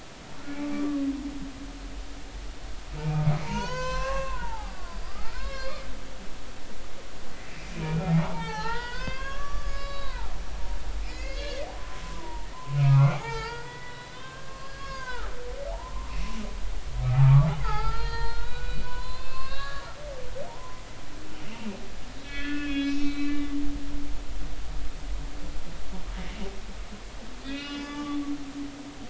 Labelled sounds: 0.7	1.1	humpback whale, 1.1 to 1.2 kHz
3.4	5.9	humpback whale, 0.80 to 7.3 kHz
7.4	10.3	humpback whale, 0.80 to 5.8 kHz
11.0	16.1	humpback whale, 0.80 to 5.2 kHz
17.0	19.9	humpback whale, 0.80 to 4.9 kHz
20.5	20.8	humpback whale, 0.86 to 1.1 kHz
22.2	23.4	humpback whale, 1.4 to 5.5 kHz
27.4	28.2	humpback whale, 1.1 to 5.2 kHz

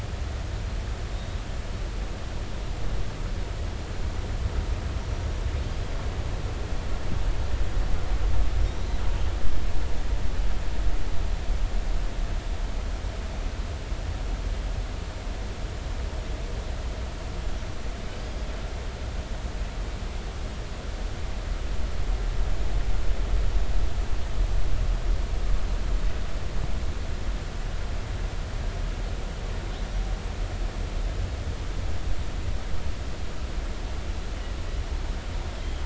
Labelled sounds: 1.1	1.4	killer whale, northern resident, G clan, GI subclan, call N23i, 3.6 to 3.9 kHz
8.6	8.9	killer whale, northern resident, G clan, GG subclan, call N28, 5.4 to 5.8 kHz
18.2	18.5	killer whale, northern resident, G clan, call N23i, 4.7 to 5.0 kHz
35.6	35.8	killer whale, northern resident, G clan, GI subclan, call N25, 3.1 to 3.3 kHz

